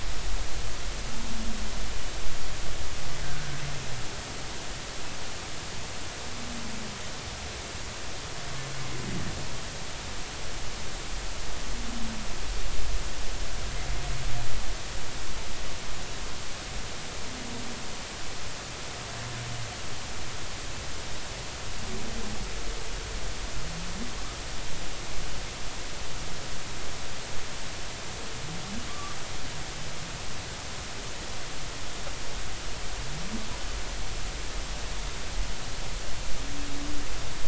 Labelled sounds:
28.9	29.2	humpback whale, 1.1 to 1.2 kHz

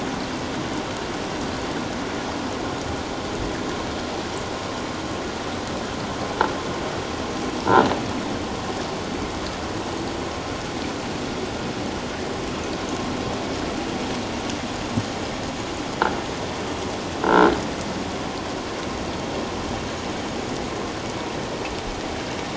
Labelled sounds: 17.2	17.5	croaking sound likely from a nearby submerged object, 1.3 to 1.7 kHz

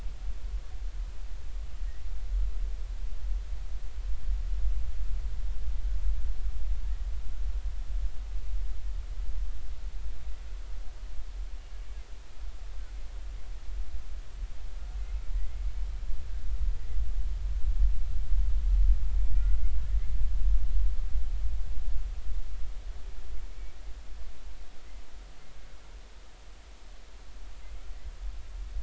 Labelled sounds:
15.3	15.7	humpback whale, 1.8 to 2.2 kHz
19.3	19.7	humpback whale, 1.3 to 2.2 kHz
23.5	23.8	humpback whale, 2.2 to 2.3 kHz

